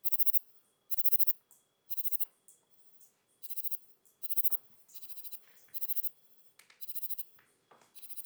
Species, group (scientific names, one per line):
Platycleis intermedia
Orthoptera